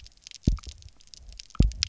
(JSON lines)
{"label": "biophony, double pulse", "recorder": "SoundTrap 300"}